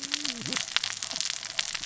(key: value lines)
label: biophony, cascading saw
recorder: SoundTrap 600 or HydroMoth